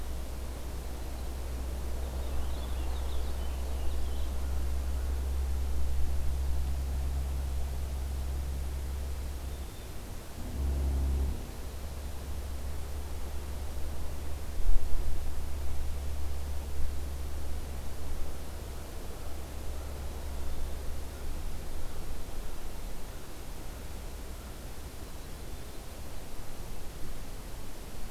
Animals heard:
Purple Finch (Haemorhous purpureus)

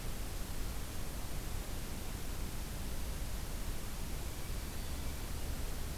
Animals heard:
Black-throated Green Warbler (Setophaga virens)
Hermit Thrush (Catharus guttatus)

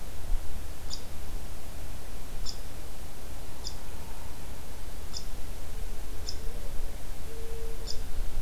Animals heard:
Downy Woodpecker (Dryobates pubescens)

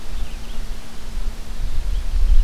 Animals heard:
Red-eyed Vireo (Vireo olivaceus)

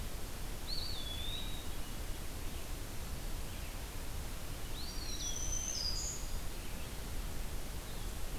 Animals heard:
Eastern Wood-Pewee (Contopus virens)
Black-throated Green Warbler (Setophaga virens)
Red-eyed Vireo (Vireo olivaceus)

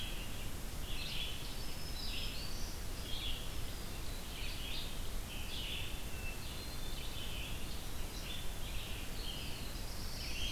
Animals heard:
Black-throated Green Warbler (Setophaga virens)
Red-eyed Vireo (Vireo olivaceus)
Hermit Thrush (Catharus guttatus)
Black-throated Blue Warbler (Setophaga caerulescens)

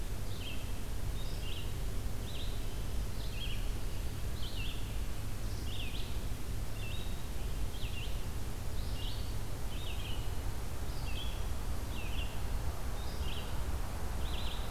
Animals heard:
Red-eyed Vireo (Vireo olivaceus)

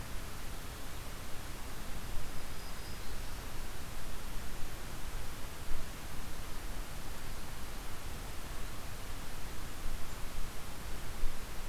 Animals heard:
Black-throated Green Warbler (Setophaga virens)

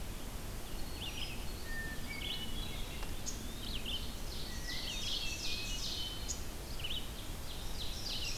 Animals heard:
Ovenbird (Seiurus aurocapilla)
Eastern Wood-Pewee (Contopus virens)
Red-eyed Vireo (Vireo olivaceus)
Hermit Thrush (Catharus guttatus)

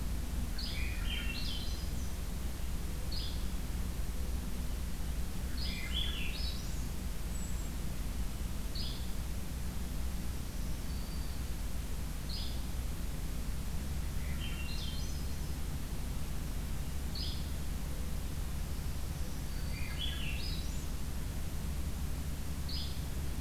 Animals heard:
Black-throated Green Warbler (Setophaga virens)
Yellow-bellied Flycatcher (Empidonax flaviventris)
Swainson's Thrush (Catharus ustulatus)

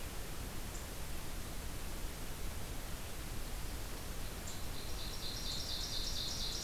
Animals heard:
Ovenbird (Seiurus aurocapilla)

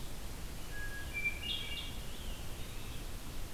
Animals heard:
Hermit Thrush (Catharus guttatus)
Scarlet Tanager (Piranga olivacea)

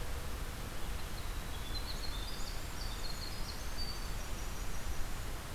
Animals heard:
Winter Wren (Troglodytes hiemalis)

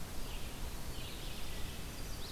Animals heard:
Red-eyed Vireo (Vireo olivaceus)
Chestnut-sided Warbler (Setophaga pensylvanica)

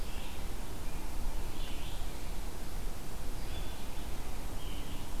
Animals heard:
Red-eyed Vireo (Vireo olivaceus)

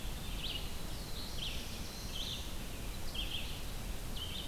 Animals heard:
Red-eyed Vireo (Vireo olivaceus)
Black-throated Blue Warbler (Setophaga caerulescens)

